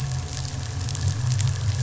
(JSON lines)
{"label": "anthrophony, boat engine", "recorder": "SoundTrap 500"}